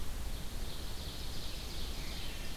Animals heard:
American Robin (Turdus migratorius), Ovenbird (Seiurus aurocapilla)

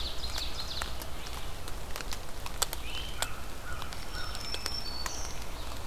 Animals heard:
Red-eyed Vireo (Vireo olivaceus), Great Crested Flycatcher (Myiarchus crinitus), American Crow (Corvus brachyrhynchos), Black-throated Green Warbler (Setophaga virens), Ovenbird (Seiurus aurocapilla)

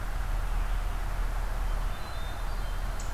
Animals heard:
Hermit Thrush (Catharus guttatus)

